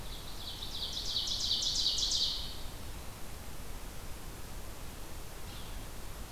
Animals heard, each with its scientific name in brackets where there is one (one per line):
Ovenbird (Seiurus aurocapilla)
Yellow-bellied Sapsucker (Sphyrapicus varius)